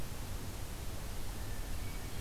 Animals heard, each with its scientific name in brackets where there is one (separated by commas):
Red-eyed Vireo (Vireo olivaceus), Hermit Thrush (Catharus guttatus)